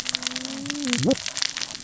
{"label": "biophony, cascading saw", "recorder": "SoundTrap 600 or HydroMoth"}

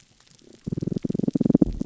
{"label": "biophony", "recorder": "SoundTrap 300"}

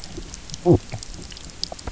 {"label": "biophony", "recorder": "SoundTrap 300"}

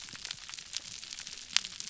{"label": "biophony, whup", "recorder": "SoundTrap 300"}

